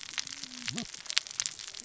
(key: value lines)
label: biophony, cascading saw
recorder: SoundTrap 600 or HydroMoth